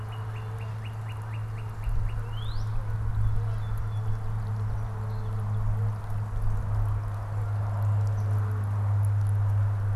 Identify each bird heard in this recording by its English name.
Northern Cardinal, Canada Goose, Song Sparrow